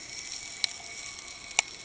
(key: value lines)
label: ambient
recorder: HydroMoth